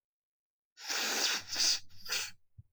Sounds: Sniff